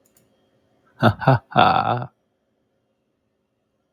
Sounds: Laughter